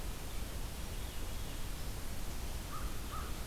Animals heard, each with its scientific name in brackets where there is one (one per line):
Veery (Catharus fuscescens)
American Crow (Corvus brachyrhynchos)